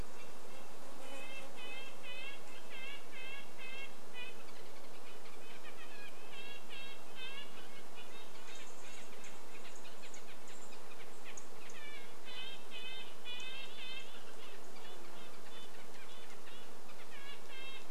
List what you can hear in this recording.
Red-breasted Nuthatch song, insect buzz, Red-breasted Nuthatch call, Dark-eyed Junco call, unidentified bird chip note